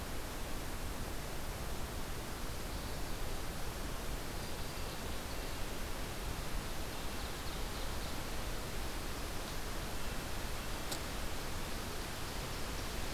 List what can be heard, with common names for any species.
Black-throated Green Warbler, Ovenbird